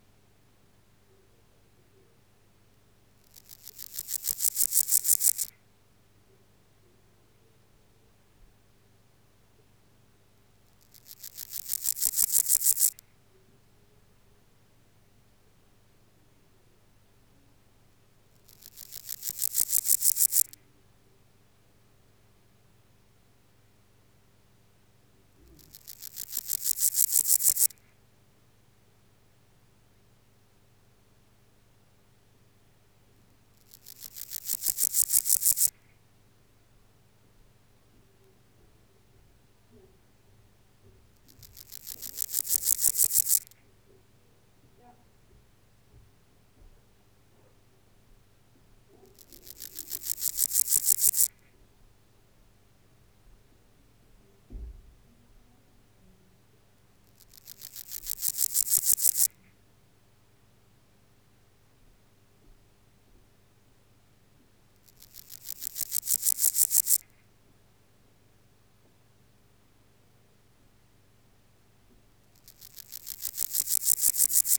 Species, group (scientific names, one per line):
Pseudochorthippus parallelus
Orthoptera